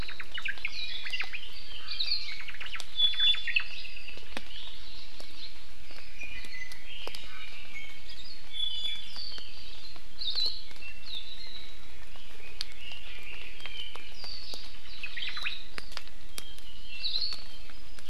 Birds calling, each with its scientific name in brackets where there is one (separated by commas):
Omao (Myadestes obscurus), Apapane (Himatione sanguinea), Iiwi (Drepanis coccinea), Hawaii Amakihi (Chlorodrepanis virens), Warbling White-eye (Zosterops japonicus), Red-billed Leiothrix (Leiothrix lutea)